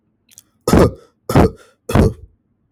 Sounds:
Cough